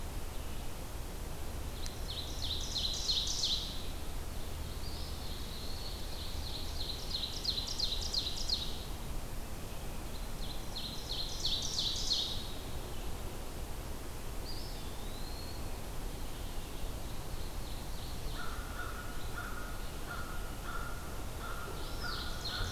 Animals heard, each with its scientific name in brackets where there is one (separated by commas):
American Crow (Corvus brachyrhynchos), Ovenbird (Seiurus aurocapilla), Eastern Wood-Pewee (Contopus virens)